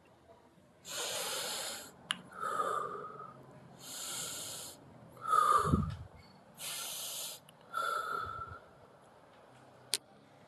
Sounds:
Sigh